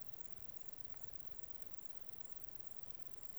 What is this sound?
Conocephalus fuscus, an orthopteran